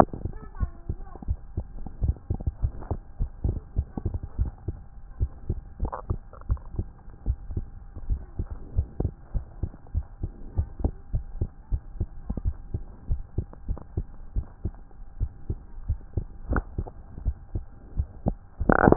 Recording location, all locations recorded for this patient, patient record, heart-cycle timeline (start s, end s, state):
tricuspid valve (TV)
aortic valve (AV)+pulmonary valve (PV)+tricuspid valve (TV)+mitral valve (MV)
#Age: Child
#Sex: Male
#Height: 110.0 cm
#Weight: 20.5 kg
#Pregnancy status: False
#Murmur: Absent
#Murmur locations: nan
#Most audible location: nan
#Systolic murmur timing: nan
#Systolic murmur shape: nan
#Systolic murmur grading: nan
#Systolic murmur pitch: nan
#Systolic murmur quality: nan
#Diastolic murmur timing: nan
#Diastolic murmur shape: nan
#Diastolic murmur grading: nan
#Diastolic murmur pitch: nan
#Diastolic murmur quality: nan
#Outcome: Normal
#Campaign: 2015 screening campaign
0.00	1.00	unannotated
1.00	1.26	diastole
1.26	1.38	S1
1.38	1.56	systole
1.56	1.72	S2
1.72	2.00	diastole
2.00	2.16	S1
2.16	2.30	systole
2.30	2.42	S2
2.42	2.60	diastole
2.60	2.74	S1
2.74	2.90	systole
2.90	3.02	S2
3.02	3.20	diastole
3.20	3.30	S1
3.30	3.42	systole
3.42	3.58	S2
3.58	3.76	diastole
3.76	3.86	S1
3.86	4.02	systole
4.02	4.16	S2
4.16	4.38	diastole
4.38	4.54	S1
4.54	4.65	systole
4.65	4.76	S2
4.76	5.18	diastole
5.18	5.30	S1
5.30	5.46	systole
5.46	5.58	S2
5.58	5.80	diastole
5.80	5.94	S1
5.94	6.08	systole
6.08	6.22	S2
6.22	6.48	diastole
6.48	6.62	S1
6.62	6.76	systole
6.76	6.88	S2
6.88	7.24	diastole
7.24	7.36	S1
7.36	7.54	systole
7.54	7.68	S2
7.68	8.06	diastole
8.06	8.22	S1
8.22	8.38	systole
8.38	8.50	S2
8.50	8.72	diastole
8.72	8.86	S1
8.86	8.98	systole
8.98	9.12	S2
9.12	9.34	diastole
9.34	9.44	S1
9.44	9.60	systole
9.60	9.70	S2
9.70	9.94	diastole
9.94	10.04	S1
10.04	10.20	systole
10.20	10.32	S2
10.32	10.56	diastole
10.56	10.70	S1
10.70	10.82	systole
10.82	10.96	S2
10.96	11.14	diastole
11.14	11.26	S1
11.26	11.40	systole
11.40	11.50	S2
11.50	11.70	diastole
11.70	11.82	S1
11.82	11.98	systole
11.98	12.10	S2
12.10	12.38	diastole
12.38	12.56	S1
12.56	12.72	systole
12.72	12.84	S2
12.84	13.08	diastole
13.08	13.24	S1
13.24	13.36	systole
13.36	13.46	S2
13.46	13.68	diastole
13.68	13.78	S1
13.78	13.96	systole
13.96	14.08	S2
14.08	14.36	diastole
14.36	14.50	S1
14.50	14.61	systole
14.61	14.73	S2
14.73	15.16	diastole
15.16	15.30	S1
15.30	15.48	systole
15.48	15.60	S2
15.60	15.86	diastole
15.86	16.00	S1
16.00	16.16	systole
16.16	16.28	S2
16.28	16.48	diastole
16.48	16.64	S1
16.64	16.76	systole
16.76	16.89	S2
16.89	17.22	diastole
17.22	17.36	S1
17.36	17.54	systole
17.54	17.66	S2
17.66	17.94	diastole
17.94	18.10	S1
18.10	18.24	systole
18.24	18.38	S2
18.38	18.51	diastole
18.51	18.96	unannotated